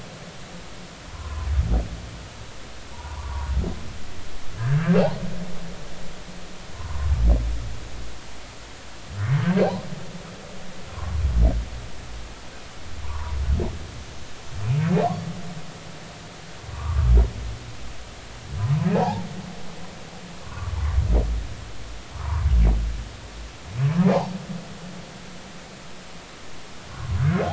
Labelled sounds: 1.1	1.5	humpback whale, 0.96 to 1.2 kHz
2.9	3.5	humpback whale, 0.86 to 1.2 kHz
4.5	5.0	humpback whale, 1.5 to 1.8 kHz
6.7	7.1	humpback whale, 0.90 to 1.2 kHz
10.9	11.1	humpback whale, 0.93 to 1.2 kHz
13.0	13.4	humpback whale, 0.86 to 1.4 kHz
16.7	17.1	humpback whale, 0.86 to 1.3 kHz
18.9	19.3	humpback whale, 0.80 to 0.99 kHz
20.4	20.7	humpback whale, 0.93 to 1.2 kHz
22.2	22.5	humpback whale, 0.86 to 1.3 kHz
24.1	24.3	humpback whale, 0.80 to 1.1 kHz

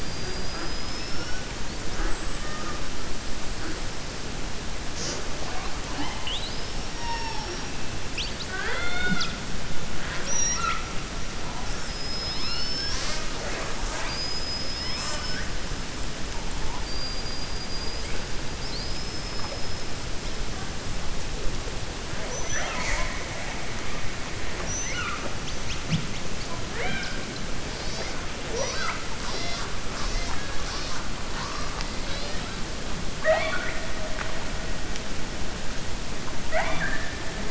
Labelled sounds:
0.0	1.4	killer whale, 4.8 to 5.7 kHz
16.7	18.1	killer whale, 4.6 to 5.0 kHz

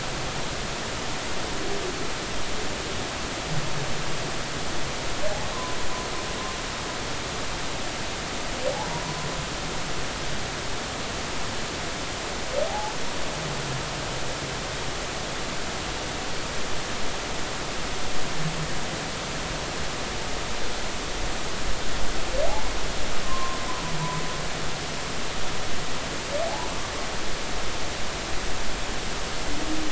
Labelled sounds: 5.5	5.8	humpback whale, 0.96 to 1.1 kHz
8.7	9.0	humpback whale, 0.80 to 1.0 kHz
12.7	12.9	humpback whale, 0.80 to 0.96 kHz
22.5	22.7	humpback whale, 0.80 to 1.1 kHz
23.2	23.9	humpback whale, 0.96 to 1.1 kHz
26.5	26.7	humpback whale, 0.80 to 1.0 kHz

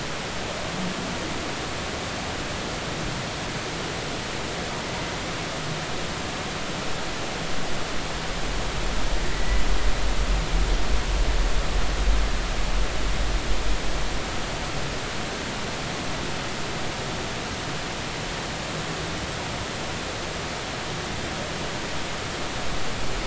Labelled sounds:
9.3	9.6	humpback whale, 1.9 to 2.1 kHz

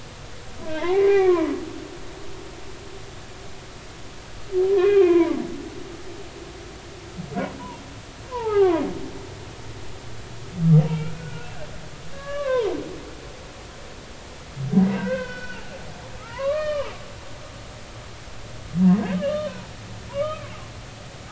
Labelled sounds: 0.6	1.5	humpback whale, 0.80 to 2.5 kHz
4.7	5.4	humpback whale, 0.86 to 3.4 kHz
8.3	8.8	humpback whale, 0.80 to 1.4 kHz
10.8	11.5	humpback whale, 1.3 to 2.9 kHz
12.1	12.7	humpback whale, 0.90 to 2.9 kHz
14.9	15.6	humpback whale, 0.93 to 5.5 kHz
16.3	16.9	humpback whale, 0.86 to 4.4 kHz
19.1	20.5	humpback whale, 0.90 to 3.1 kHz

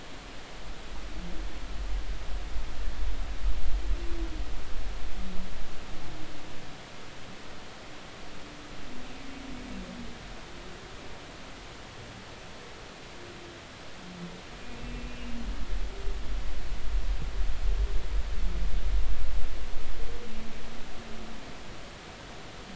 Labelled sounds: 14.8	15.4	humpback whale, 2.6 to 2.8 kHz

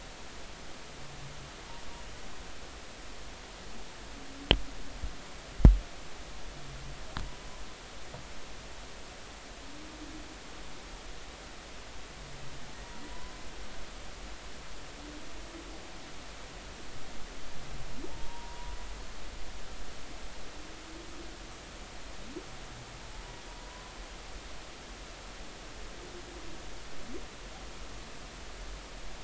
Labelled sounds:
18.1	18.8	humpback whale, 0.80 to 1.1 kHz

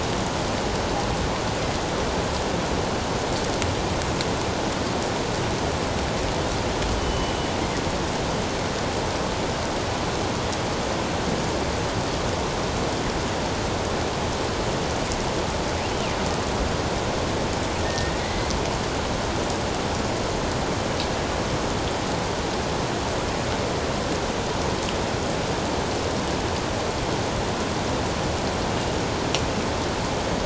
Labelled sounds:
7.0	7.3	killer whale, northern resident, G clan, 2.9 to 3.1 kHz
17.8	18.5	killer whale, northern resident, G clan, 1.8 to 2.1 kHz

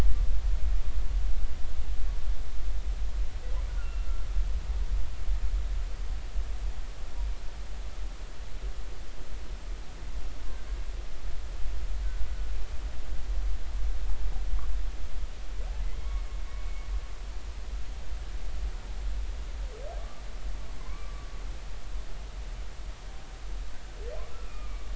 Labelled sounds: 3.7	4.1	humpback whale, 1.3 to 2.8 kHz
16.0	16.9	humpback whale, 2.1 to 2.3 kHz
20.8	21.3	humpback whale, 0.96 to 1.2 kHz
24.4	24.9	humpback whale, 2.2 to 2.5 kHz

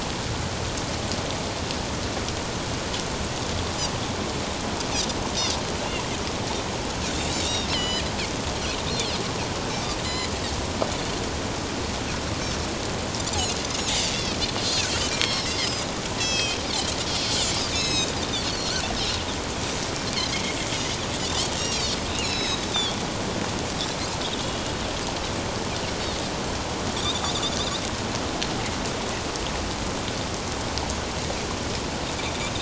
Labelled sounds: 7.4	8.1	Pacific white-sided dolphin, 1.8 to 8.0 kHz
10.0	10.3	Pacific white-sided dolphin, 2.0 to 7.2 kHz
14.1	15.8	Pacific white-sided dolphin, 1.8 to 5.8 kHz
16.2	19.2	Pacific white-sided dolphin, 2.3 to 8.0 kHz
20.3	20.6	Pacific white-sided dolphin, 2.0 to 2.3 kHz
21.5	23.0	Pacific white-sided dolphin, 2.2 to 7.6 kHz
27.0	27.5	Pacific white-sided dolphin, 3.2 to 3.9 kHz

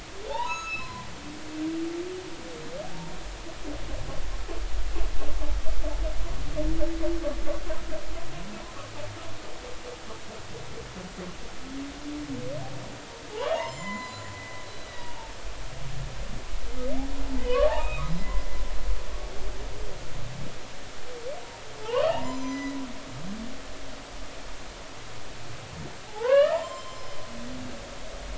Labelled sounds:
0.3	1.1	humpback whale, 0.80 to 6.7 kHz
13.3	15.3	humpback whale, 0.80 to 7.4 kHz
17.4	18.4	humpback whale, 0.80 to 3.9 kHz
21.8	22.8	humpback whale, 0.80 to 6.2 kHz
26.1	27.2	humpback whale, 0.80 to 7.4 kHz

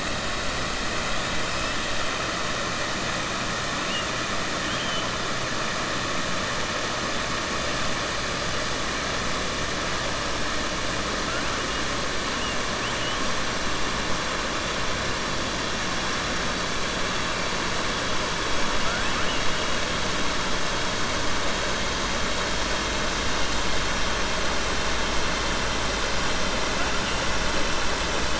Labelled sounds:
4.6	5.1	killer whale, 2.9 to 3.3 kHz
18.8	19.4	killer whale, 0.67 to 3.1 kHz

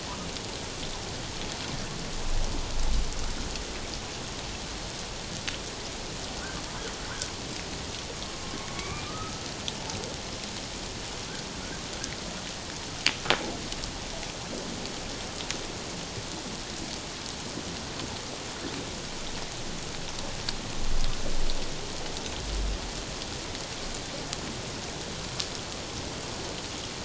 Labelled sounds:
8.7	9.4	humpback whale, 1.1 to 2.5 kHz

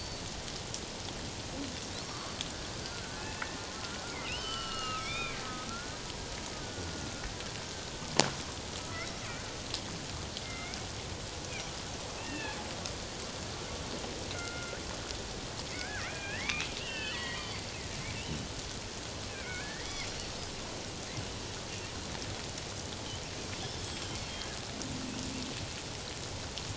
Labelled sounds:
2.0	2.4	killer whale, northern resident, G clan, 1.0 to 1.4 kHz
3.2	5.4	killer whale, northern resident, G clan, 1.2 to 7.6 kHz
5.7	7.2	killer whale, northern resident, G clan, 1.3 to 1.6 kHz
8.8	9.1	killer whale, northern resident, G clan, 1.2 to 1.5 kHz
10.4	10.8	killer whale, northern resident, G clan, 2.0 to 2.4 kHz
12.2	12.6	killer whale, northern resident, G clan, 1.6 to 2.8 kHz
14.3	14.8	killer whale, northern resident, G clan, 1.3 to 2.2 kHz
15.7	17.7	killer whale, northern resident, G clan, 0.94 to 4.7 kHz
18.1	18.5	killer whale, northern resident, G clan, 2.6 to 3.1 kHz
19.3	20.1	killer whale, northern resident, G clan, 1.4 to 2.7 kHz
23.6	24.2	killer whale, northern resident, G clan, 4.9 to 7.9 kHz

